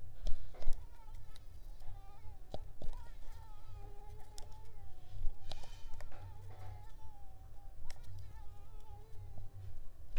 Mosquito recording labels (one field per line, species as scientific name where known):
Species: Mansonia uniformis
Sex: female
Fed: unfed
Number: one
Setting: cup